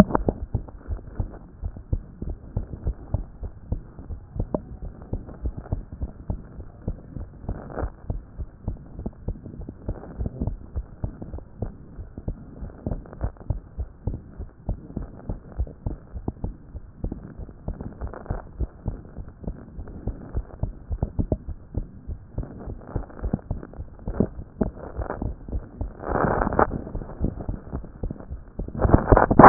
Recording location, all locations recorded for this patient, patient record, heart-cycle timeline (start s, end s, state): tricuspid valve (TV)
aortic valve (AV)+pulmonary valve (PV)+tricuspid valve (TV)+mitral valve (MV)
#Age: Child
#Sex: Female
#Height: 136.0 cm
#Weight: 18.7 kg
#Pregnancy status: False
#Murmur: Absent
#Murmur locations: nan
#Most audible location: nan
#Systolic murmur timing: nan
#Systolic murmur shape: nan
#Systolic murmur grading: nan
#Systolic murmur pitch: nan
#Systolic murmur quality: nan
#Diastolic murmur timing: nan
#Diastolic murmur shape: nan
#Diastolic murmur grading: nan
#Diastolic murmur pitch: nan
#Diastolic murmur quality: nan
#Outcome: Abnormal
#Campaign: 2014 screening campaign
0.00	0.70	unannotated
0.70	0.90	diastole
0.90	1.00	S1
1.00	1.18	systole
1.18	1.30	S2
1.30	1.62	diastole
1.62	1.74	S1
1.74	1.92	systole
1.92	2.02	S2
2.02	2.26	diastole
2.26	2.36	S1
2.36	2.56	systole
2.56	2.64	S2
2.64	2.84	diastole
2.84	2.96	S1
2.96	3.12	systole
3.12	3.24	S2
3.24	3.42	diastole
3.42	3.54	S1
3.54	3.70	systole
3.70	3.82	S2
3.82	4.10	diastole
4.10	4.20	S1
4.20	4.36	systole
4.36	4.46	S2
4.46	4.82	diastole
4.82	4.94	S1
4.94	5.12	systole
5.12	5.22	S2
5.22	5.44	diastole
5.44	5.54	S1
5.54	5.72	systole
5.72	5.82	S2
5.82	6.02	diastole
6.02	6.12	S1
6.12	6.28	systole
6.28	6.40	S2
6.40	6.58	diastole
6.58	29.49	unannotated